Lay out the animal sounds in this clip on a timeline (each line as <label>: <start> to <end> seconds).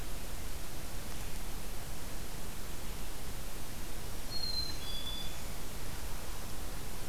Black-throated Green Warbler (Setophaga virens): 4.0 to 5.5 seconds
Black-capped Chickadee (Poecile atricapillus): 4.2 to 5.4 seconds